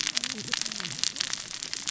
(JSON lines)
{"label": "biophony, cascading saw", "recorder": "SoundTrap 600 or HydroMoth"}